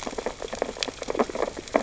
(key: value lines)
label: biophony, sea urchins (Echinidae)
recorder: SoundTrap 600 or HydroMoth